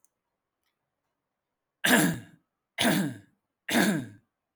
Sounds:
Cough